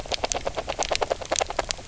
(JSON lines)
{"label": "biophony, knock croak", "recorder": "SoundTrap 300"}